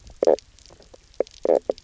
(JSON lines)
{"label": "biophony, knock croak", "recorder": "SoundTrap 300"}